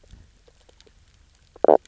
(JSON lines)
{"label": "biophony, knock croak", "recorder": "SoundTrap 300"}